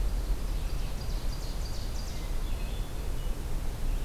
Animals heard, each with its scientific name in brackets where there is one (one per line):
Ovenbird (Seiurus aurocapilla)
Red-eyed Vireo (Vireo olivaceus)
Hermit Thrush (Catharus guttatus)